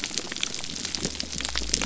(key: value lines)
label: biophony
recorder: SoundTrap 300